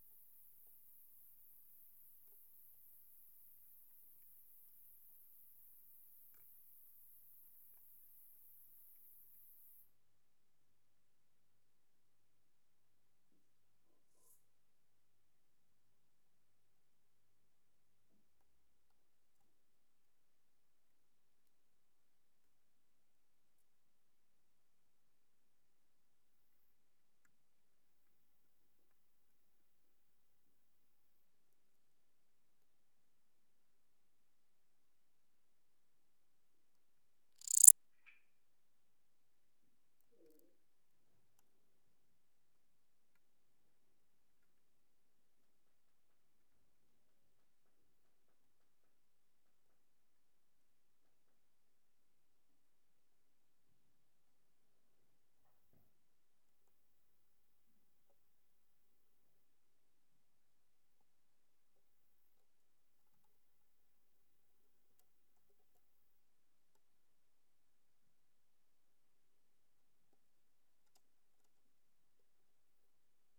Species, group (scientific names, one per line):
Lluciapomaresius stalii
Orthoptera